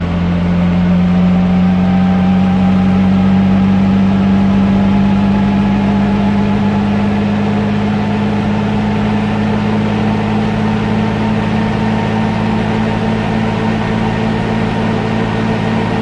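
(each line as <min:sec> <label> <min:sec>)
0:00.0 A helicopter engine starting up. 0:16.0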